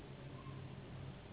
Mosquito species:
Anopheles gambiae s.s.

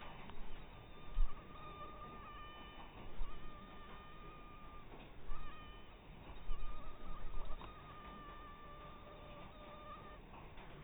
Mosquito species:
mosquito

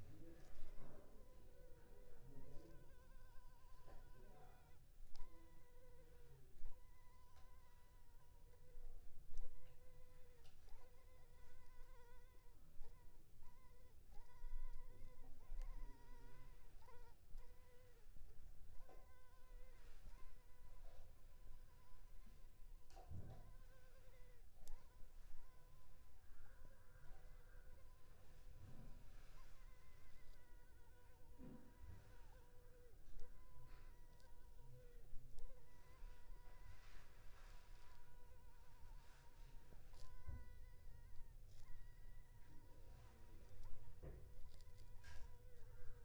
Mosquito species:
Culex pipiens complex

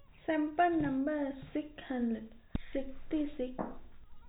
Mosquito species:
no mosquito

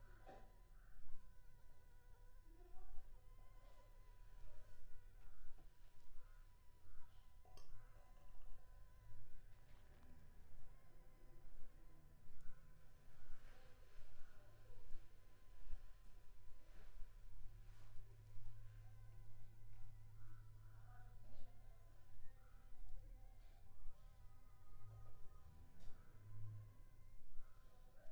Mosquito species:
Anopheles funestus s.s.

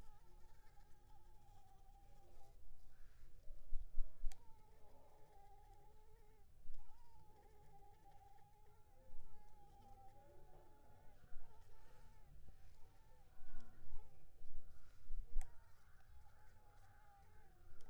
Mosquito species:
Culex pipiens complex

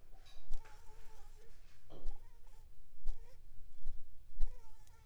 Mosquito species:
Anopheles gambiae s.l.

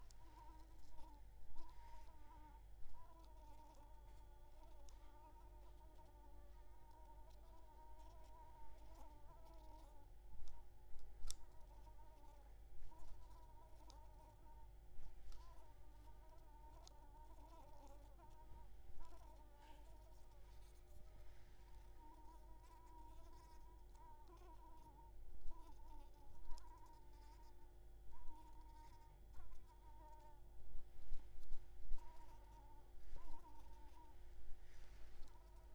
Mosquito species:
Anopheles coustani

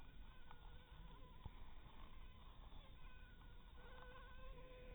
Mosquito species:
Anopheles maculatus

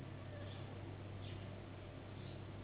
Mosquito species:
Anopheles gambiae s.s.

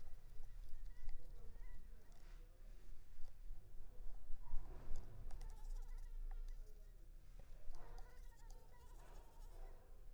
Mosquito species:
Anopheles arabiensis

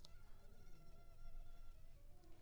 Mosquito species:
Culex pipiens complex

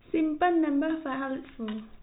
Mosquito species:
no mosquito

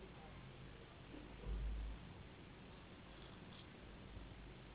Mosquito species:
Anopheles gambiae s.s.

